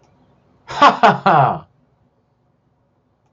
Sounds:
Laughter